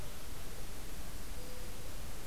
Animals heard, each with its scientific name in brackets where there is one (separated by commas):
Mourning Dove (Zenaida macroura)